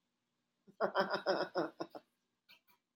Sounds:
Laughter